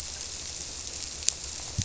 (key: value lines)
label: biophony
recorder: SoundTrap 300